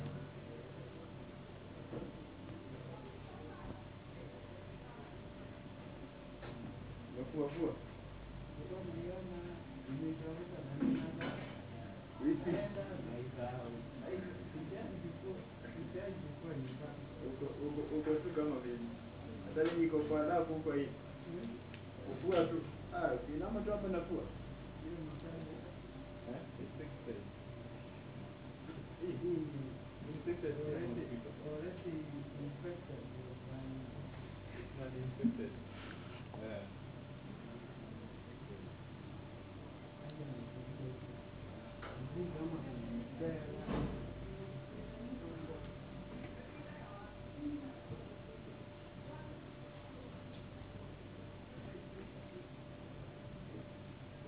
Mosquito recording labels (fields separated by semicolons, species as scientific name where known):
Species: no mosquito; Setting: insect culture